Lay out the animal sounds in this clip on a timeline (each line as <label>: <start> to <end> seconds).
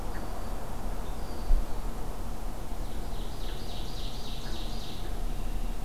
Red-winged Blackbird (Agelaius phoeniceus): 1.1 to 1.6 seconds
Ovenbird (Seiurus aurocapilla): 2.8 to 5.2 seconds
Red-winged Blackbird (Agelaius phoeniceus): 5.0 to 5.8 seconds